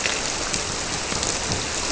{"label": "biophony", "recorder": "SoundTrap 300"}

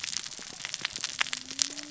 {"label": "biophony, cascading saw", "recorder": "SoundTrap 600 or HydroMoth"}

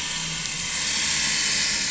{"label": "anthrophony, boat engine", "recorder": "SoundTrap 500"}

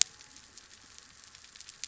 {"label": "biophony", "recorder": "SoundTrap 300"}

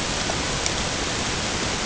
{"label": "ambient", "recorder": "HydroMoth"}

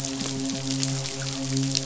{"label": "biophony, midshipman", "recorder": "SoundTrap 500"}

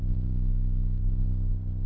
{"label": "anthrophony, boat engine", "recorder": "SoundTrap 300"}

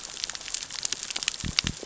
{"label": "biophony", "recorder": "SoundTrap 600 or HydroMoth"}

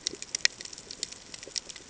{"label": "ambient", "recorder": "HydroMoth"}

